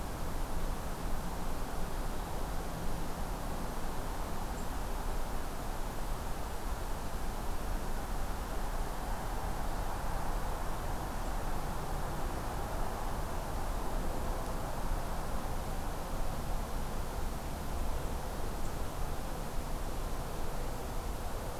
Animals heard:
forest ambience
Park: Acadia National Park